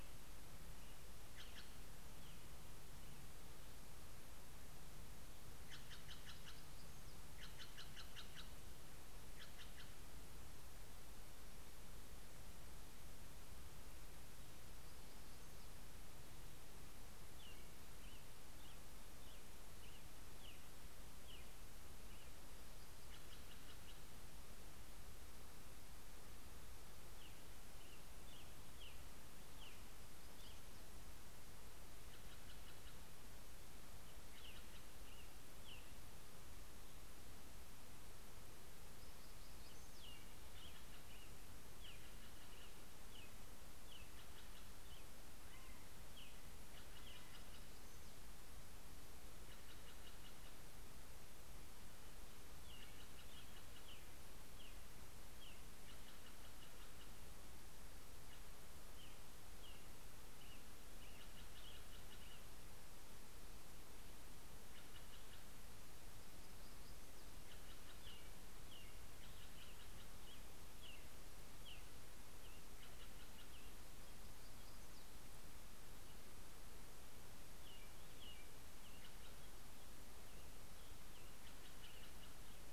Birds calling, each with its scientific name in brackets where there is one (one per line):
Black-throated Gray Warbler (Setophaga nigrescens)
Steller's Jay (Cyanocitta stelleri)
American Robin (Turdus migratorius)